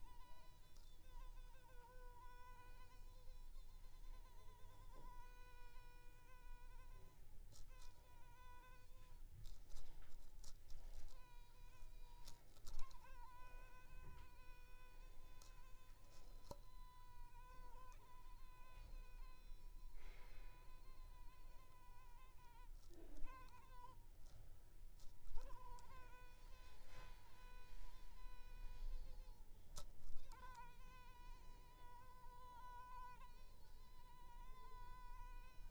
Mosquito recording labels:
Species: Culex pipiens complex; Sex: female; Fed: unfed; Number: one; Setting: cup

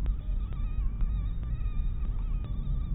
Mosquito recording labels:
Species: mosquito; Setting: cup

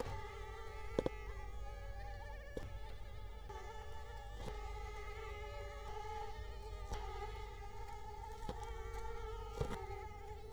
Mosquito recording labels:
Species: Culex quinquefasciatus; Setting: cup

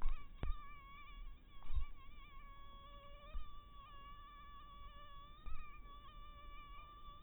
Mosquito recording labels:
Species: mosquito; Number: one; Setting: cup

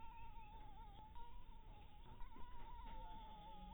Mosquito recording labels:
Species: Anopheles harrisoni; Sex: female; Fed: blood-fed; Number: one; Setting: cup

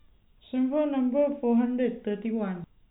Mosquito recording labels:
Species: no mosquito; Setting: cup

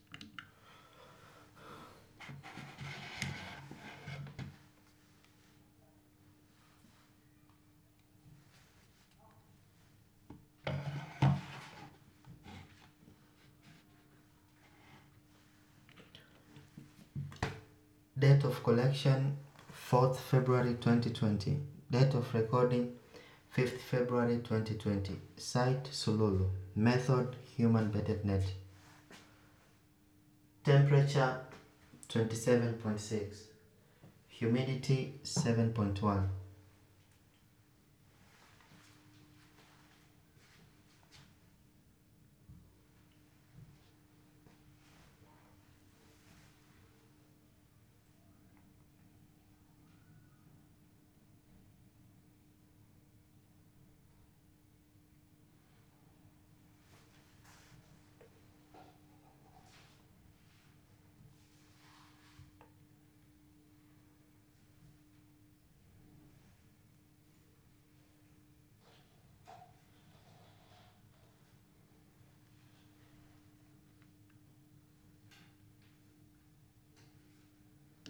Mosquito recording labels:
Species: no mosquito; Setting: cup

